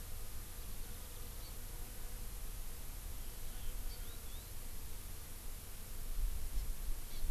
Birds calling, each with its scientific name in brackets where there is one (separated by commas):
Warbling White-eye (Zosterops japonicus), Hawaii Amakihi (Chlorodrepanis virens)